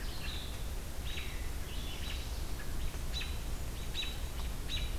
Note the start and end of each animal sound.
[0.00, 2.06] Red-eyed Vireo (Vireo olivaceus)
[0.94, 1.29] American Robin (Turdus migratorius)
[2.04, 2.32] American Robin (Turdus migratorius)
[3.02, 4.86] American Robin (Turdus migratorius)

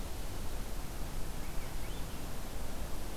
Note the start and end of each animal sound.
[1.18, 2.17] Swainson's Thrush (Catharus ustulatus)

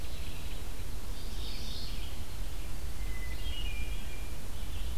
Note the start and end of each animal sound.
[0.00, 4.98] Red-eyed Vireo (Vireo olivaceus)
[1.04, 2.30] Mourning Warbler (Geothlypis philadelphia)
[2.85, 4.62] Hermit Thrush (Catharus guttatus)

